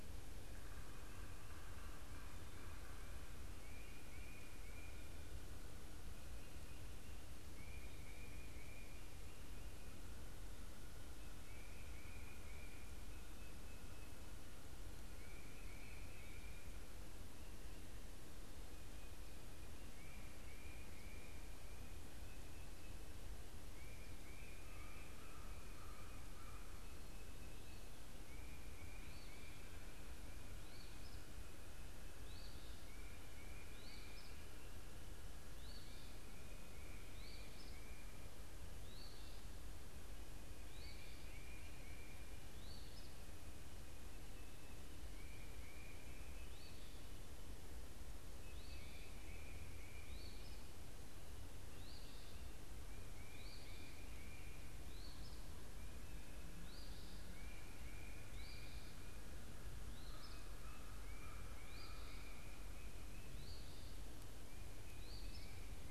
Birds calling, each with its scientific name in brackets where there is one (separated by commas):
Northern Waterthrush (Parkesia noveboracensis), Eastern Phoebe (Sayornis phoebe), Tufted Titmouse (Baeolophus bicolor)